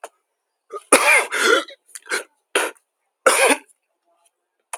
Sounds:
Throat clearing